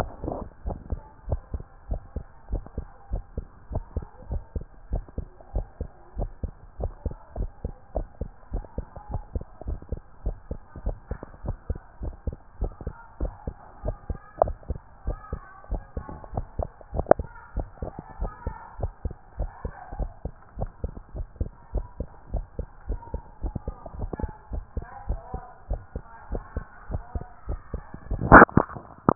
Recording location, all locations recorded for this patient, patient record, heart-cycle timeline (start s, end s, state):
tricuspid valve (TV)
aortic valve (AV)+pulmonary valve (PV)+tricuspid valve (TV)+mitral valve (MV)
#Age: nan
#Sex: Male
#Height: 133.0 cm
#Weight: 35.2 kg
#Pregnancy status: False
#Murmur: Absent
#Murmur locations: nan
#Most audible location: nan
#Systolic murmur timing: nan
#Systolic murmur shape: nan
#Systolic murmur grading: nan
#Systolic murmur pitch: nan
#Systolic murmur quality: nan
#Diastolic murmur timing: nan
#Diastolic murmur shape: nan
#Diastolic murmur grading: nan
#Diastolic murmur pitch: nan
#Diastolic murmur quality: nan
#Outcome: Normal
#Campaign: 2014 screening campaign
0.00	0.66	unannotated
0.66	0.78	S1
0.78	0.90	systole
0.90	1.00	S2
1.00	1.28	diastole
1.28	1.40	S1
1.40	1.52	systole
1.52	1.62	S2
1.62	1.90	diastole
1.90	2.02	S1
2.02	2.16	systole
2.16	2.24	S2
2.24	2.50	diastole
2.50	2.64	S1
2.64	2.76	systole
2.76	2.86	S2
2.86	3.12	diastole
3.12	3.24	S1
3.24	3.36	systole
3.36	3.46	S2
3.46	3.72	diastole
3.72	3.84	S1
3.84	3.96	systole
3.96	4.04	S2
4.04	4.30	diastole
4.30	4.42	S1
4.42	4.54	systole
4.54	4.64	S2
4.64	4.92	diastole
4.92	5.04	S1
5.04	5.16	systole
5.16	5.26	S2
5.26	5.54	diastole
5.54	5.66	S1
5.66	5.80	systole
5.80	5.88	S2
5.88	6.18	diastole
6.18	6.30	S1
6.30	6.42	systole
6.42	6.52	S2
6.52	6.80	diastole
6.80	6.92	S1
6.92	7.04	systole
7.04	7.14	S2
7.14	7.38	diastole
7.38	7.50	S1
7.50	7.64	systole
7.64	7.74	S2
7.74	7.96	diastole
7.96	8.08	S1
8.08	8.20	systole
8.20	8.30	S2
8.30	8.52	diastole
8.52	8.64	S1
8.64	8.76	systole
8.76	8.86	S2
8.86	9.10	diastole
9.10	9.22	S1
9.22	9.34	systole
9.34	9.44	S2
9.44	9.66	diastole
9.66	9.80	S1
9.80	9.90	systole
9.90	10.00	S2
10.00	10.24	diastole
10.24	10.36	S1
10.36	10.50	systole
10.50	10.60	S2
10.60	10.84	diastole
10.84	10.96	S1
10.96	11.10	systole
11.10	11.18	S2
11.18	11.44	diastole
11.44	11.56	S1
11.56	11.68	systole
11.68	11.78	S2
11.78	12.02	diastole
12.02	12.14	S1
12.14	12.26	systole
12.26	12.36	S2
12.36	12.60	diastole
12.60	12.72	S1
12.72	12.86	systole
12.86	12.94	S2
12.94	13.20	diastole
13.20	13.32	S1
13.32	13.46	systole
13.46	13.54	S2
13.54	13.84	diastole
13.84	13.96	S1
13.96	14.08	systole
14.08	14.18	S2
14.18	14.42	diastole
14.42	14.56	S1
14.56	14.68	systole
14.68	14.78	S2
14.78	15.06	diastole
15.06	15.18	S1
15.18	15.32	systole
15.32	15.40	S2
15.40	15.70	diastole
15.70	15.82	S1
15.82	15.96	systole
15.96	16.04	S2
16.04	16.34	diastole
16.34	16.46	S1
16.46	16.58	systole
16.58	16.68	S2
16.68	16.94	diastole
16.94	17.06	S1
17.06	17.18	systole
17.18	17.26	S2
17.26	17.56	diastole
17.56	17.68	S1
17.68	17.82	systole
17.82	17.90	S2
17.90	18.20	diastole
18.20	18.32	S1
18.32	18.46	systole
18.46	18.54	S2
18.54	18.80	diastole
18.80	18.92	S1
18.92	19.04	systole
19.04	19.14	S2
19.14	19.38	diastole
19.38	19.50	S1
19.50	19.64	systole
19.64	19.72	S2
19.72	19.98	diastole
19.98	20.10	S1
20.10	20.24	systole
20.24	20.32	S2
20.32	20.58	diastole
20.58	20.70	S1
20.70	20.82	systole
20.82	20.92	S2
20.92	21.16	diastole
21.16	21.28	S1
21.28	21.40	systole
21.40	21.50	S2
21.50	21.74	diastole
21.74	21.86	S1
21.86	21.98	systole
21.98	22.08	S2
22.08	22.32	diastole
22.32	22.46	S1
22.46	22.58	systole
22.58	22.68	S2
22.68	22.88	diastole
22.88	23.00	S1
23.00	23.12	systole
23.12	23.22	S2
23.22	23.42	diastole
23.42	23.54	S1
23.54	23.66	systole
23.66	23.76	S2
23.76	23.98	diastole
23.98	24.10	S1
24.10	24.22	systole
24.22	24.30	S2
24.30	24.52	diastole
24.52	24.64	S1
24.64	24.76	systole
24.76	24.86	S2
24.86	25.08	diastole
25.08	25.20	S1
25.20	25.32	systole
25.32	25.42	S2
25.42	25.70	diastole
25.70	25.82	S1
25.82	25.94	systole
25.94	26.04	S2
26.04	26.30	diastole
26.30	26.42	S1
26.42	26.56	systole
26.56	26.64	S2
26.64	26.90	diastole
26.90	27.02	S1
27.02	27.14	systole
27.14	27.24	S2
27.24	27.48	diastole
27.48	27.60	S1
27.60	27.72	systole
27.72	27.82	S2
27.82	28.12	diastole
28.12	29.15	unannotated